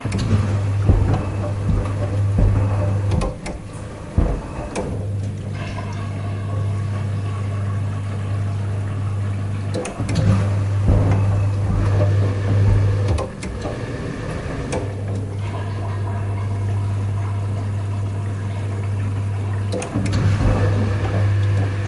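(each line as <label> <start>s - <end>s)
A washing machine cycles with a two-second pause. 0.0s - 21.9s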